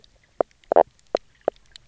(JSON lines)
{"label": "biophony, knock croak", "recorder": "SoundTrap 300"}